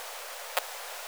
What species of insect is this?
Poecilimon zwicki